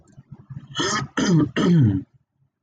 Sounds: Throat clearing